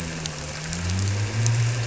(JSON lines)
{"label": "anthrophony, boat engine", "recorder": "SoundTrap 300"}